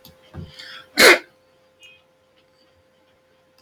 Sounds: Sneeze